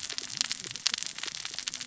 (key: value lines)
label: biophony, cascading saw
recorder: SoundTrap 600 or HydroMoth